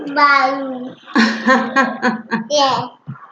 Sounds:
Laughter